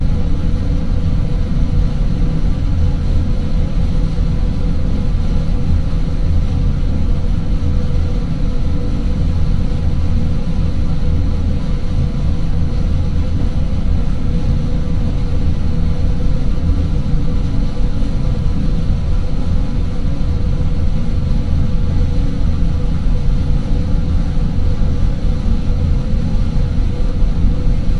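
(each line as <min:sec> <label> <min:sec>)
0:00.1 Engine noise and ventilation sounds in the cabin. 0:28.0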